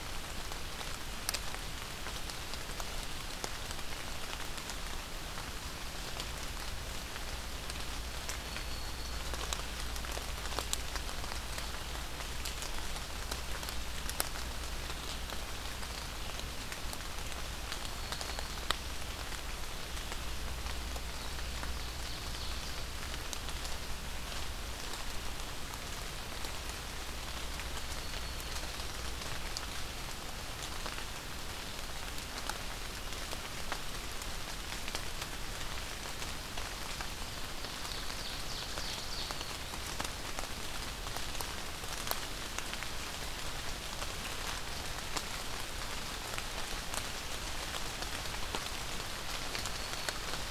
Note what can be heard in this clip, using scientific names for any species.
Setophaga virens, Seiurus aurocapilla